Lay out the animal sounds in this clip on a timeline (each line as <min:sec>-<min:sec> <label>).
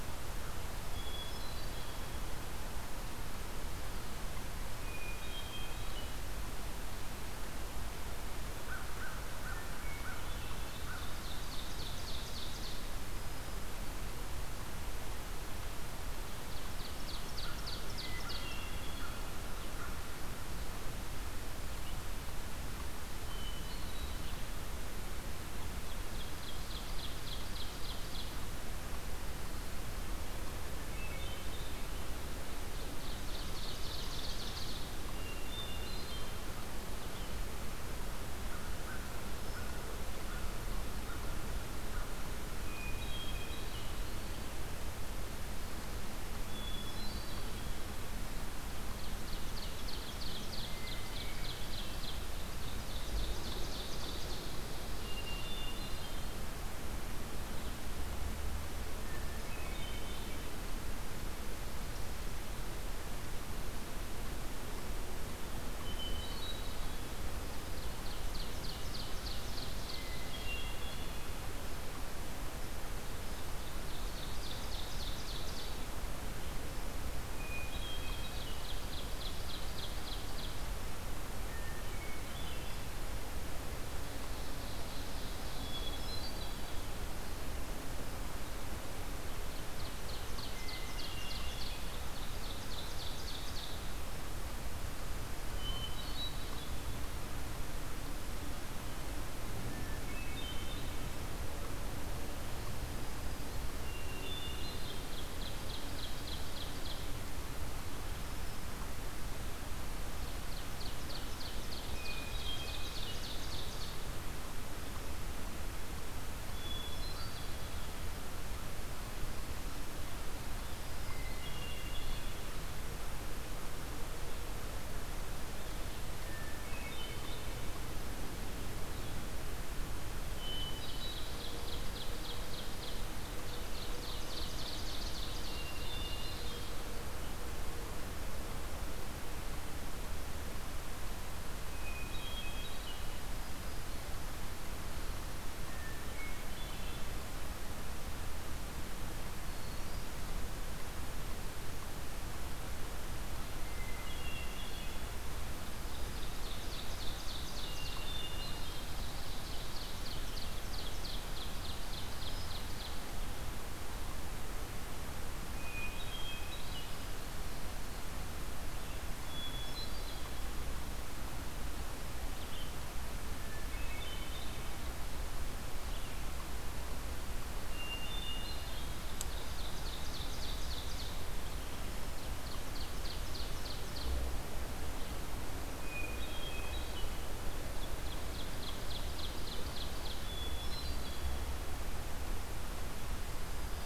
0:00.7-0:02.3 Hermit Thrush (Catharus guttatus)
0:04.7-0:06.3 Hermit Thrush (Catharus guttatus)
0:08.5-0:11.2 American Crow (Corvus brachyrhynchos)
0:09.9-0:13.3 Ovenbird (Seiurus aurocapilla)
0:16.1-0:18.5 Ovenbird (Seiurus aurocapilla)
0:17.2-0:20.7 American Crow (Corvus brachyrhynchos)
0:18.2-0:19.6 Hermit Thrush (Catharus guttatus)
0:23.1-0:24.6 Hermit Thrush (Catharus guttatus)
0:25.4-0:28.6 Ovenbird (Seiurus aurocapilla)
0:30.7-0:32.0 Hermit Thrush (Catharus guttatus)
0:32.6-0:35.0 Ovenbird (Seiurus aurocapilla)
0:35.1-0:36.7 Hermit Thrush (Catharus guttatus)
0:38.4-0:42.3 American Crow (Corvus brachyrhynchos)
0:42.5-0:44.3 Hermit Thrush (Catharus guttatus)
0:46.3-0:47.9 Hermit Thrush (Catharus guttatus)
0:48.6-0:54.6 Ovenbird (Seiurus aurocapilla)
0:54.9-0:56.6 Hermit Thrush (Catharus guttatus)
0:58.9-1:00.7 Hermit Thrush (Catharus guttatus)
1:05.7-1:07.1 Hermit Thrush (Catharus guttatus)
1:07.3-1:10.0 Ovenbird (Seiurus aurocapilla)
1:10.1-1:11.4 Hermit Thrush (Catharus guttatus)
1:13.1-1:15.9 Ovenbird (Seiurus aurocapilla)
1:17.1-1:18.8 Hermit Thrush (Catharus guttatus)
1:18.2-1:20.9 Ovenbird (Seiurus aurocapilla)
1:21.4-1:22.9 Hermit Thrush (Catharus guttatus)
1:23.8-1:26.0 Ovenbird (Seiurus aurocapilla)
1:25.5-1:27.0 Hermit Thrush (Catharus guttatus)
1:28.8-1:33.8 Ovenbird (Seiurus aurocapilla)
1:30.4-1:32.5 Hermit Thrush (Catharus guttatus)
1:35.3-1:37.2 Hermit Thrush (Catharus guttatus)
1:39.7-1:41.4 Hermit Thrush (Catharus guttatus)
1:43.6-1:45.1 Hermit Thrush (Catharus guttatus)
1:44.5-1:47.3 Ovenbird (Seiurus aurocapilla)
1:49.9-1:54.3 Ovenbird (Seiurus aurocapilla)
1:51.9-1:52.9 Hermit Thrush (Catharus guttatus)
1:56.3-1:58.0 Hermit Thrush (Catharus guttatus)
2:00.8-2:02.7 Hermit Thrush (Catharus guttatus)
2:05.9-2:07.6 Hermit Thrush (Catharus guttatus)
2:10.3-2:11.4 Hermit Thrush (Catharus guttatus)
2:10.5-2:16.6 Ovenbird (Seiurus aurocapilla)
2:15.5-2:17.0 Hermit Thrush (Catharus guttatus)
2:21.5-2:23.3 Hermit Thrush (Catharus guttatus)
2:25.5-2:27.8 Hermit Thrush (Catharus guttatus)
2:29.2-2:30.4 Hermit Thrush (Catharus guttatus)
2:33.7-2:35.3 Hermit Thrush (Catharus guttatus)
2:36.2-2:43.2 Ovenbird (Seiurus aurocapilla)
2:37.4-2:39.2 Hermit Thrush (Catharus guttatus)
2:42.1-2:43.0 Hermit Thrush (Catharus guttatus)
2:45.2-2:47.3 Hermit Thrush (Catharus guttatus)
2:49.2-2:50.9 Hermit Thrush (Catharus guttatus)
2:53.4-2:55.2 Hermit Thrush (Catharus guttatus)
2:57.7-2:59.2 Hermit Thrush (Catharus guttatus)
2:58.9-3:01.3 Ovenbird (Seiurus aurocapilla)
3:02.0-3:04.4 Ovenbird (Seiurus aurocapilla)
3:05.5-3:07.6 Hermit Thrush (Catharus guttatus)
3:07.2-3:10.5 Ovenbird (Seiurus aurocapilla)
3:10.1-3:11.9 Hermit Thrush (Catharus guttatus)